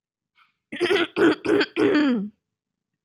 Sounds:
Throat clearing